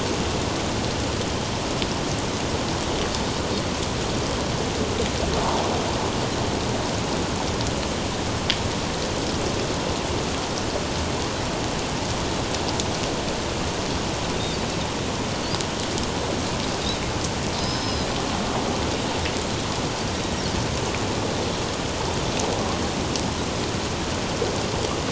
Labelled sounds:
17.6	18.1	Pacific white-sided dolphin, 4.9 to 5.3 kHz

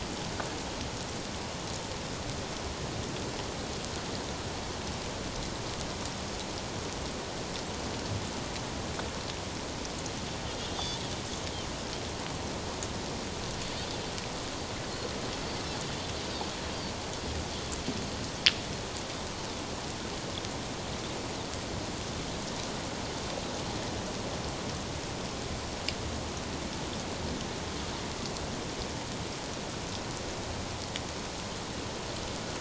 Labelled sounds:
10.6	11.0	Pacific white-sided dolphin, 3.1 to 3.7 kHz

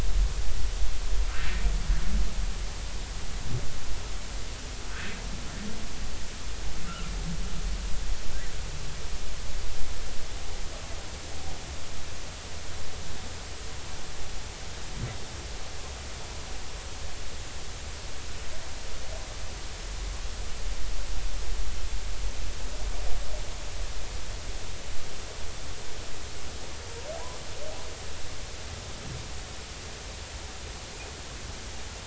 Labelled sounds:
6.8	7.1	humpback whale, 1.2 to 1.5 kHz

